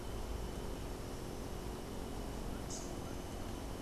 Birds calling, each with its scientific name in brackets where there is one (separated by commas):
Rufous-capped Warbler (Basileuterus rufifrons)